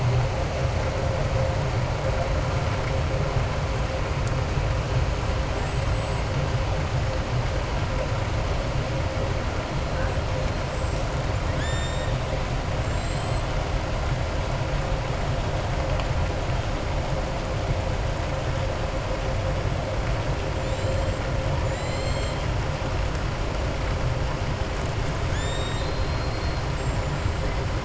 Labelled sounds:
5.5	6.3	killer whale, southern resident, 6.9 to 7.9 kHz
11.5	12.1	killer whale, southern resident, 1.7 to 7.5 kHz
12.7	13.5	killer whale, southern resident, 3.2 to 7.8 kHz
20.5	21.2	killer whale, southern resident, 7.1 to 8.0 kHz
21.5	22.4	killer whale, southern resident, 2.0 to 7.5 kHz
25.2	27.3	killer whale, southern resident, 1.6 to 7.9 kHz

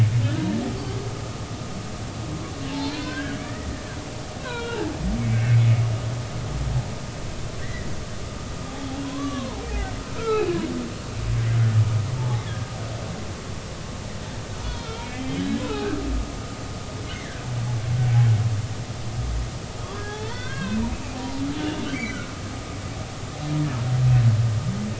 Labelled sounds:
2.7	3.7	humpback whale, 0.80 to 4.3 kHz
4.4	5.0	humpback whale, 0.80 to 4.0 kHz
7.6	7.9	humpback whale, 1.7 to 2.1 kHz
9.0	10.5	humpback whale, 0.80 to 2.4 kHz
12.2	12.7	humpback whale, 0.80 to 1.8 kHz
14.6	15.2	humpback whale, 0.90 to 3.5 kHz
15.6	16.0	humpback whale, 2.4 to 2.7 kHz
17.1	17.4	humpback whale, 1.5 to 2.2 kHz
19.8	20.8	humpback whale, 0.99 to 4.4 kHz
21.2	22.3	humpback whale, 0.90 to 2.9 kHz

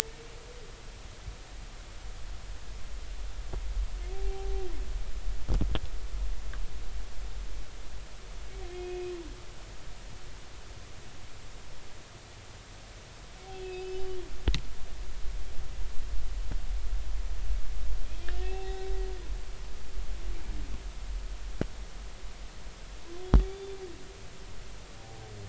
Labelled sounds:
4.1	4.7	humpback whale, 0.80 to 0.83 kHz
8.7	9.1	humpback whale, 2.4 to 2.6 kHz
13.6	14.0	humpback whale, 2.5 to 4.9 kHz
18.4	18.9	humpback whale, 0.80 to 2.7 kHz
23.4	23.8	humpback whale, 3.4 to 3.6 kHz

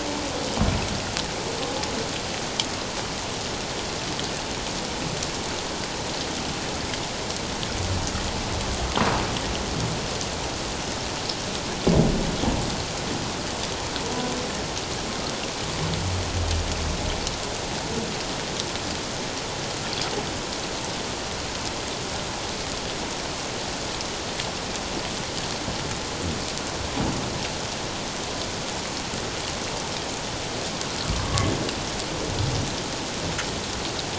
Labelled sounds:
31.1	31.5	humpback whale, 1.1 to 1.2 kHz

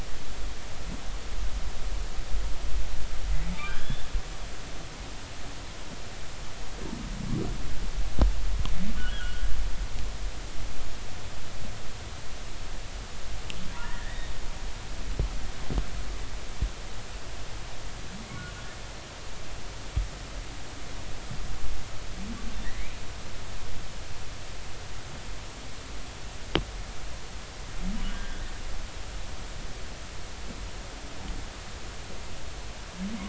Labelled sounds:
3.6	4.1	humpback whale, 1.4 to 3.6 kHz
9.0	9.5	humpback whale, 1.2 to 3.4 kHz
13.7	14.3	humpback whale, 0.90 to 3.8 kHz
22.6	23.0	humpback whale, 1.7 to 2.5 kHz
28.1	28.5	humpback whale, 1.5 to 1.7 kHz

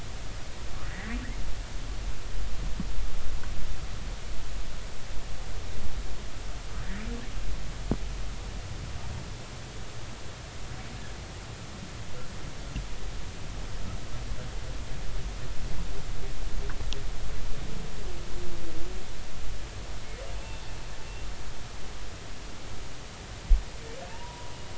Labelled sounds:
0.8	1.2	humpback whale, 1.6 to 2.2 kHz
20.4	20.6	humpback whale, 2.5 to 2.8 kHz
24.1	24.5	humpback whale, 0.86 to 1.0 kHz

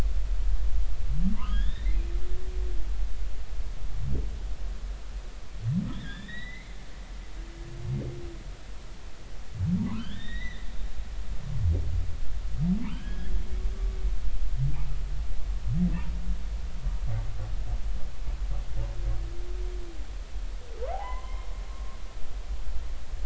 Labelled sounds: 1.3	2.0	humpback whale, 0.86 to 4.0 kHz
5.9	6.8	humpback whale, 1.5 to 4.2 kHz
9.8	10.7	humpback whale, 0.90 to 4.1 kHz
12.9	13.3	humpback whale, 1.5 to 3.4 kHz
20.9	21.5	humpback whale, 0.80 to 2.2 kHz

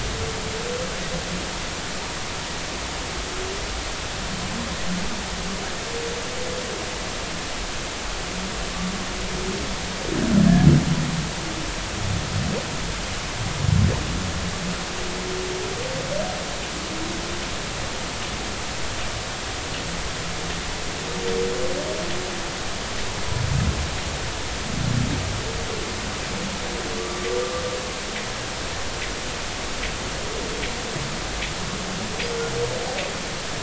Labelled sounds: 27.0	27.3	humpback whale, 1.1 to 1.3 kHz

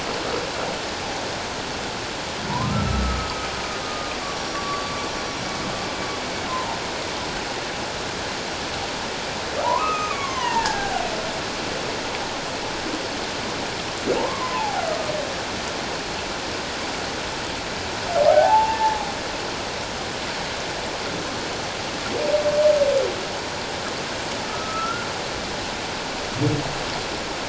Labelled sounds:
2.6	3.5	humpback whale, 1.2 to 1.4 kHz
3.8	5.4	humpback whale, 1.1 to 5.8 kHz
6.5	6.8	humpback whale, 0.78 to 1.1 kHz
9.6	11.0	humpback whale, 0.78 to 3.4 kHz
14.2	14.9	humpback whale, 0.78 to 1.2 kHz
18.3	19.1	humpback whale, 0.78 to 1.8 kHz
24.4	25.1	humpback whale, 1.2 to 1.5 kHz

